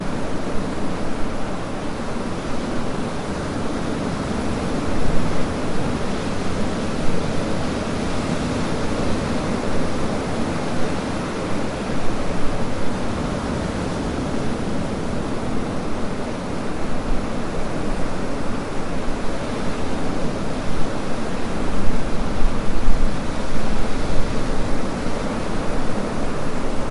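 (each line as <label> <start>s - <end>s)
Sea waves splash continuously, creating a constant hush with occasional louder splashes. 0.1s - 26.9s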